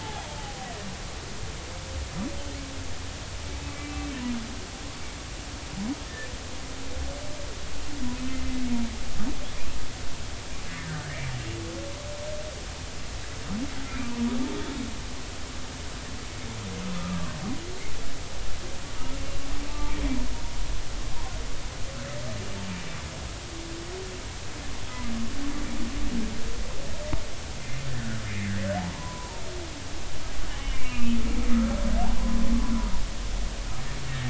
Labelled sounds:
0.0	0.7	humpback whale, 0.80 to 3.5 kHz
3.7	4.0	humpback whale, 2.2 to 2.4 kHz
8.3	8.6	humpback whale, 2.0 to 2.1 kHz
10.7	11.1	humpback whale, 1.4 to 1.9 kHz
17.0	17.3	humpback whale, 1.0 to 1.4 kHz
19.7	20.0	humpback whale, 0.83 to 0.96 kHz
21.0	21.4	humpback whale, 0.90 to 1.1 kHz
28.8	29.4	humpback whale, 0.80 to 1.1 kHz
30.6	31.8	humpback whale, 1.2 to 3.1 kHz

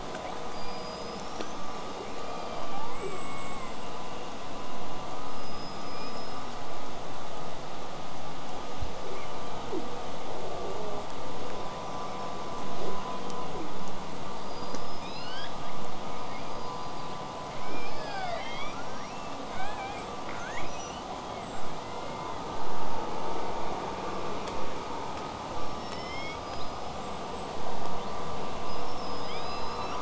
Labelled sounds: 2.7	3.8	killer whale, southern resident, call S16, 0.70 to 8.0 kHz
5.3	6.4	killer whale, southern resident, L pod, call S19, 1.9 to 8.0 kHz
6.5	9.0	vessel noise, 0 to 8.0 kHz
9.0	9.9	killer whale, southern resident, 0.19 to 8.0 kHz
10.4	11.1	killer whale, southern resident, buzz, 0.18 to 1.5 kHz
11.8	12.6	killer whale, southern resident, whistle, 5.1 to 8.0 kHz
12.7	13.7	killer whale, southern resident, L pod, call S40, 0.19 to 8.0 kHz
14.4	15.8	killer whale, southern resident, L pod, call S19, 1.3 to 8.0 kHz
16.0	17.2	killer whale, southern resident, 1.6 to 8.0 kHz
17.6	18.8	killer whale, southern resident, 0.46 to 6.1 kHz
18.0	19.4	killer whale, southern resident, L pod, call S19, 0.70 to 8.0 kHz
19.5	22.5	killer whale, southern resident, 0.66 to 8.0 kHz
26.9	28.4	killer whale, southern resident, whistle, 2.5 to 8.0 kHz
28.7	30.0	killer whale, southern resident, L pod, call S19, 1.7 to 8.0 kHz

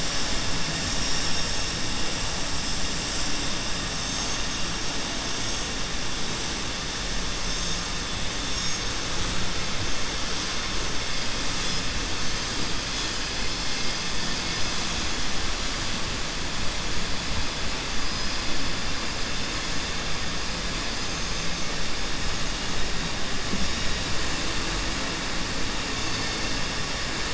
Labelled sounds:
21.0	21.7	vessel noise, 5.4 to 7.3 kHz

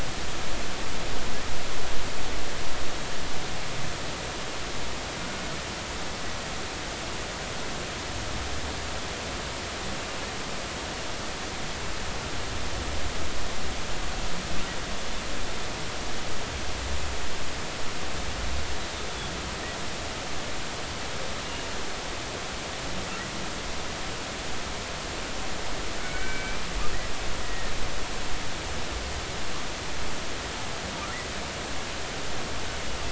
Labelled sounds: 26.0	26.6	killer whale, Bigg's (transient), 1.4 to 2.4 kHz
27.4	27.7	killer whale, Bigg's (transient), 1.8 to 2.0 kHz

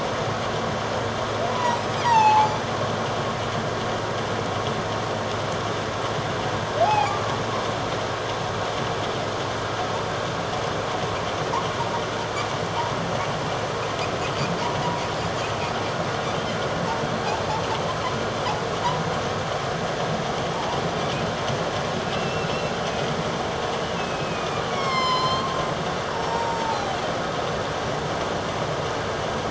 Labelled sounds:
1.5	2.5	humpback whale, 0.78 to 5.2 kHz
6.8	7.1	humpback whale, 0.78 to 2.6 kHz
22.0	22.5	humpback whale, 2.5 to 2.8 kHz
24.0	25.5	humpback whale, 0.97 to 7.5 kHz
26.1	27.0	humpback whale, 0.78 to 7.5 kHz

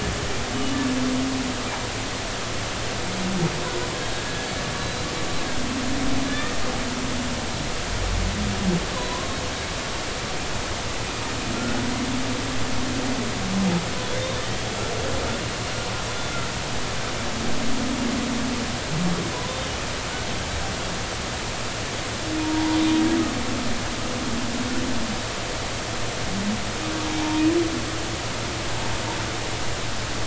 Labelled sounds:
4.1	5.0	humpback whale, 1.6 to 4.0 kHz
6.3	6.6	humpback whale, 1.7 to 1.9 kHz
8.9	9.4	humpback whale, 0.93 to 4.1 kHz
22.4	22.8	humpback whale, 0.80 to 1.1 kHz
27.2	27.4	humpback whale, 0.80 to 1.1 kHz

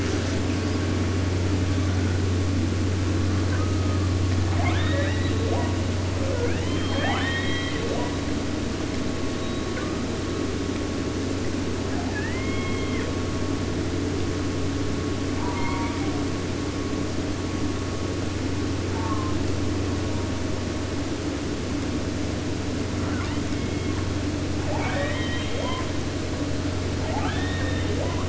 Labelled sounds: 0.0	0.8	killer whale, 0.85 to 8.0 kHz
1.6	2.3	killer whale, 0.81 to 3.9 kHz
3.4	4.1	killer whale, 0.74 to 3.2 kHz
4.2	5.7	killer whale, southern resident, 0.50 to 6.1 kHz
6.1	8.2	killer whale, southern resident, 0.50 to 6.5 kHz
9.4	10.1	killer whale, 1.1 to 4.2 kHz
11.9	13.1	killer whale, southern resident, J pod, call S44, 0.50 to 4.5 kHz
15.3	16.4	killer whale, southern resident, J pod, call S04 and call S01, 0.50 to 5.9 kHz
18.9	19.4	killer whale, southern resident, J pod, call S04, 0.37 to 1.9 kHz
22.8	24.2	killer whale, southern resident, J pod, call S44, 0.50 to 5.8 kHz
24.6	26.0	killer whale, southern resident, J pod, call S44 and call S02i, 0.50 to 4.0 kHz
27.0	28.2	killer whale, southern resident, J pod, call S02i, 0.50 to 4.0 kHz

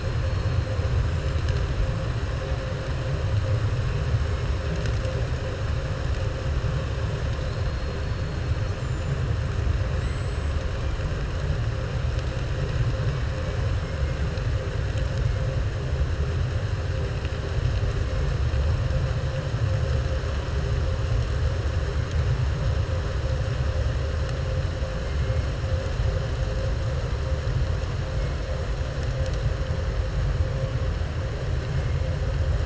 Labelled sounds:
8.7	9.2	killer whale, southern resident, 7.0 to 7.8 kHz
9.9	10.5	killer whale, southern resident, 6.7 to 7.8 kHz

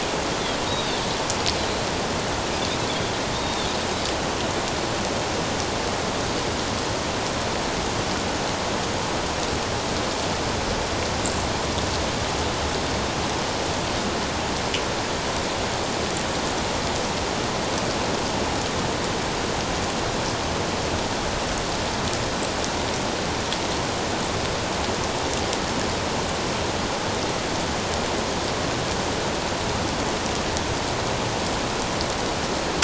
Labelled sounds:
0.7	1.0	Pacific white-sided dolphin, 3.5 to 4.8 kHz
3.3	3.7	Pacific white-sided dolphin, 3.3 to 3.8 kHz

